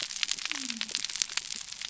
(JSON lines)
{"label": "biophony", "recorder": "SoundTrap 300"}